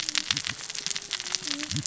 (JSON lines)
{"label": "biophony, cascading saw", "recorder": "SoundTrap 600 or HydroMoth"}